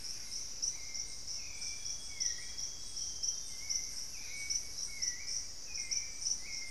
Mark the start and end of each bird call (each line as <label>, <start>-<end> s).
Hauxwell's Thrush (Turdus hauxwelli), 0.0-6.7 s
Solitary Black Cacique (Cacicus solitarius), 0.0-6.7 s
Amazonian Grosbeak (Cyanoloxia rothschildii), 1.4-4.0 s